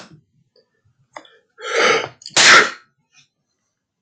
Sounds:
Sneeze